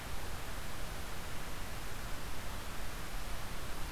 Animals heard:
forest ambience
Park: Marsh-Billings-Rockefeller National Historical Park